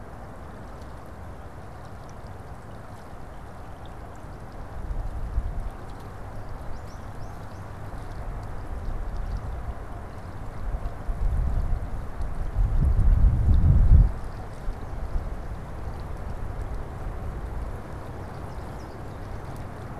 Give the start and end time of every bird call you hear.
6.1s-7.9s: American Goldfinch (Spinus tristis)
17.8s-19.7s: American Goldfinch (Spinus tristis)

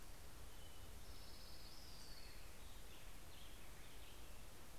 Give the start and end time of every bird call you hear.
0.0s-4.1s: Orange-crowned Warbler (Leiothlypis celata)
0.5s-4.8s: Black-headed Grosbeak (Pheucticus melanocephalus)

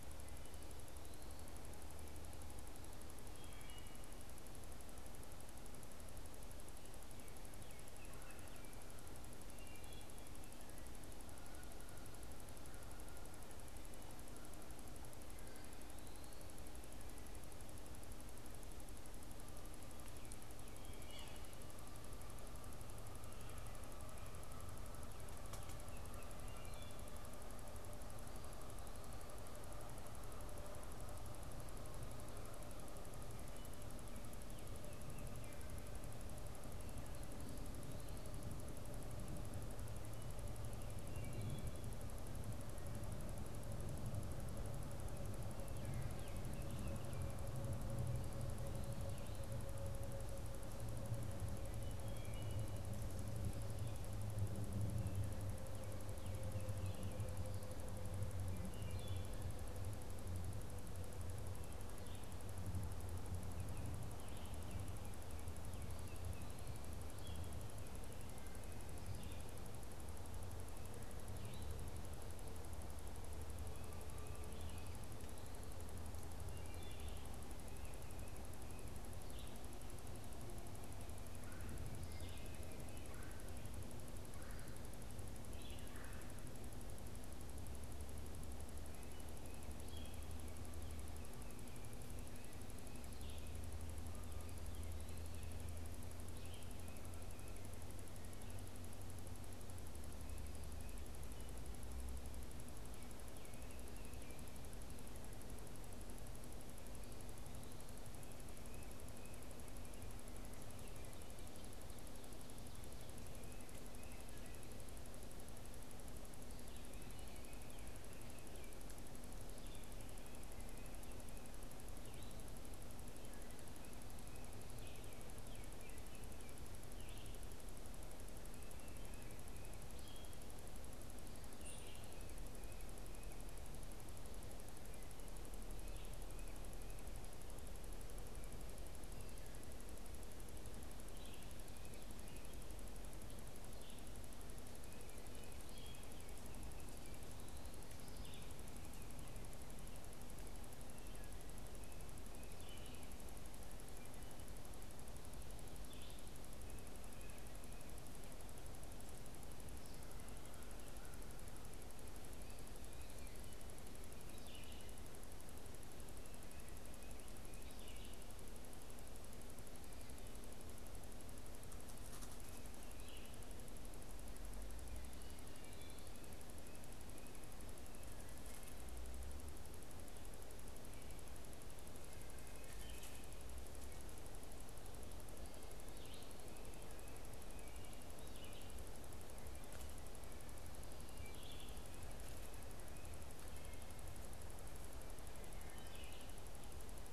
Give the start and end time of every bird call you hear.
3.3s-4.2s: Wood Thrush (Hylocichla mustelina)
7.4s-8.9s: Baltimore Oriole (Icterus galbula)
8.0s-8.6s: Red-bellied Woodpecker (Melanerpes carolinus)
9.4s-10.2s: Wood Thrush (Hylocichla mustelina)
21.0s-21.5s: Yellow-bellied Sapsucker (Sphyrapicus varius)
26.5s-27.1s: Wood Thrush (Hylocichla mustelina)
41.1s-41.8s: Wood Thrush (Hylocichla mustelina)
46.4s-47.4s: Baltimore Oriole (Icterus galbula)
51.8s-52.8s: Wood Thrush (Hylocichla mustelina)
58.6s-59.3s: Wood Thrush (Hylocichla mustelina)
67.0s-67.7s: Red-eyed Vireo (Vireo olivaceus)
69.1s-75.0s: Red-eyed Vireo (Vireo olivaceus)
79.2s-79.6s: Red-eyed Vireo (Vireo olivaceus)
81.3s-86.5s: Red-bellied Woodpecker (Melanerpes carolinus)
82.0s-90.3s: Red-eyed Vireo (Vireo olivaceus)
93.1s-93.6s: Red-eyed Vireo (Vireo olivaceus)
94.7s-95.7s: Eastern Wood-Pewee (Contopus virens)
96.4s-96.8s: Red-eyed Vireo (Vireo olivaceus)
124.8s-126.7s: Baltimore Oriole (Icterus galbula)
126.8s-132.0s: Red-eyed Vireo (Vireo olivaceus)
131.6s-132.0s: unidentified bird
148.1s-148.6s: Red-eyed Vireo (Vireo olivaceus)
152.4s-156.3s: Red-eyed Vireo (Vireo olivaceus)
164.2s-165.0s: Red-eyed Vireo (Vireo olivaceus)
167.5s-168.4s: Red-eyed Vireo (Vireo olivaceus)
182.4s-183.3s: Wood Thrush (Hylocichla mustelina)
186.0s-188.9s: Red-eyed Vireo (Vireo olivaceus)
191.1s-191.9s: Wood Thrush (Hylocichla mustelina)
195.6s-196.4s: Wood Thrush (Hylocichla mustelina)

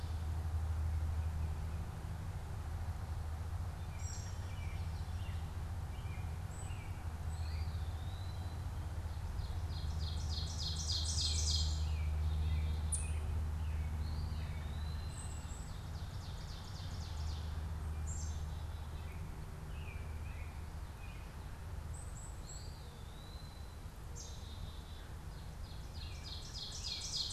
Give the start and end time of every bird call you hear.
0.0s-8.6s: Eastern Wood-Pewee (Contopus virens)
3.5s-7.8s: American Robin (Turdus migratorius)
9.0s-12.2s: Ovenbird (Seiurus aurocapilla)
10.8s-13.4s: American Robin (Turdus migratorius)
11.6s-13.4s: Black-capped Chickadee (Poecile atricapillus)
12.8s-13.2s: Ovenbird (Seiurus aurocapilla)
13.8s-27.3s: Eastern Wood-Pewee (Contopus virens)
14.9s-25.2s: Black-capped Chickadee (Poecile atricapillus)
15.3s-17.8s: Ovenbird (Seiurus aurocapilla)
19.1s-21.4s: American Robin (Turdus migratorius)
24.7s-27.3s: American Robin (Turdus migratorius)
25.1s-27.3s: Ovenbird (Seiurus aurocapilla)

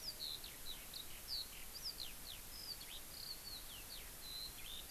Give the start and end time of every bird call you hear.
0.0s-4.9s: Eurasian Skylark (Alauda arvensis)

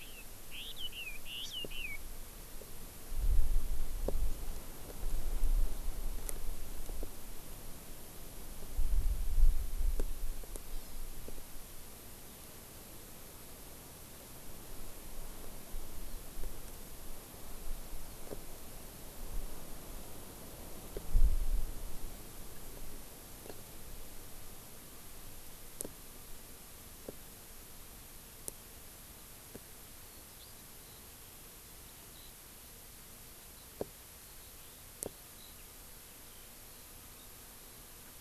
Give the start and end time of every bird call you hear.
0.0s-2.0s: Chinese Hwamei (Garrulax canorus)
1.4s-1.5s: Hawaii Amakihi (Chlorodrepanis virens)
10.7s-11.1s: Hawaii Amakihi (Chlorodrepanis virens)
30.4s-31.0s: Eurasian Skylark (Alauda arvensis)
31.6s-32.4s: Eurasian Skylark (Alauda arvensis)
33.4s-37.4s: Eurasian Skylark (Alauda arvensis)

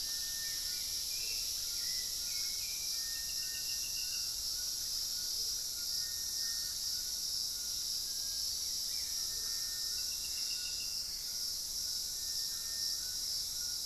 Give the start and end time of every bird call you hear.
0.0s-2.3s: Hauxwell's Thrush (Turdus hauxwelli)
0.0s-13.9s: Amazonian Motmot (Momotus momota)
0.0s-13.9s: Little Tinamou (Crypturellus soui)
0.0s-13.9s: White-throated Toucan (Ramphastos tucanus)
2.6s-7.1s: unidentified bird
8.5s-11.7s: Gray Antbird (Cercomacra cinerascens)

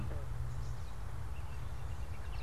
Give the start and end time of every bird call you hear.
1.1s-2.4s: American Robin (Turdus migratorius)

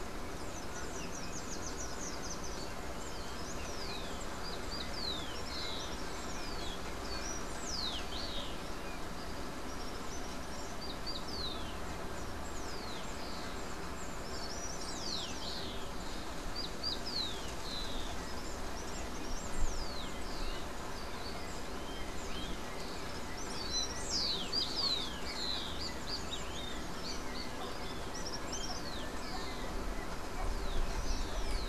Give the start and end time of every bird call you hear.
0.0s-31.7s: Rufous-collared Sparrow (Zonotrichia capensis)
0.2s-2.9s: Slate-throated Redstart (Myioborus miniatus)
18.7s-31.7s: Yellow-backed Oriole (Icterus chrysater)
24.7s-28.1s: Great Kiskadee (Pitangus sulphuratus)

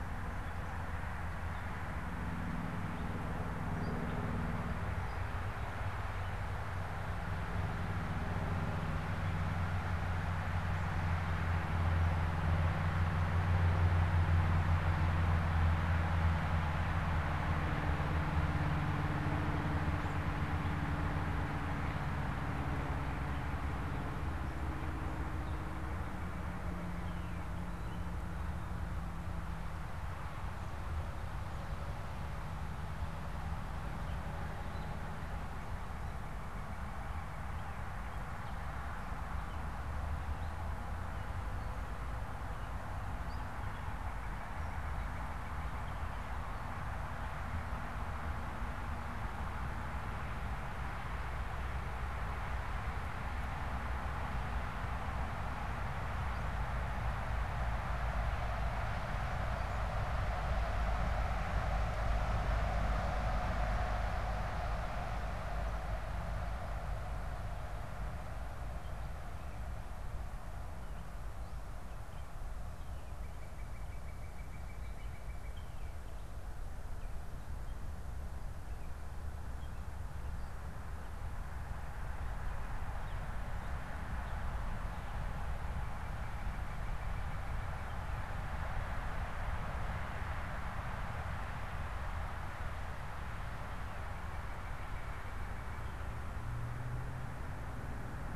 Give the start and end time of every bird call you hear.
0.0s-7.9s: Gray Catbird (Dumetella carolinensis)
35.1s-37.6s: Northern Cardinal (Cardinalis cardinalis)
43.5s-46.3s: Northern Cardinal (Cardinalis cardinalis)
72.7s-75.7s: Northern Cardinal (Cardinalis cardinalis)
85.1s-88.4s: Northern Cardinal (Cardinalis cardinalis)
93.6s-96.0s: Northern Cardinal (Cardinalis cardinalis)

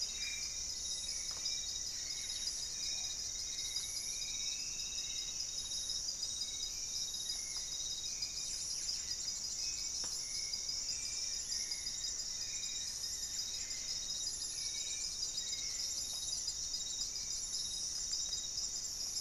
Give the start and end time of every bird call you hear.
0.0s-3.5s: Rufous-fronted Antthrush (Formicarius rufifrons)
0.0s-19.2s: Hauxwell's Thrush (Turdus hauxwelli)
0.0s-19.2s: Paradise Tanager (Tangara chilensis)
0.1s-0.7s: Black-faced Antthrush (Formicarius analis)
2.9s-5.6s: Striped Woodcreeper (Xiphorhynchus obsoletus)
8.3s-9.2s: Buff-breasted Wren (Cantorchilus leucotis)
10.8s-18.6s: Goeldi's Antbird (Akletos goeldii)
13.3s-15.4s: Black-faced Antthrush (Formicarius analis)

